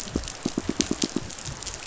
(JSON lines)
{"label": "biophony, pulse", "recorder": "SoundTrap 500"}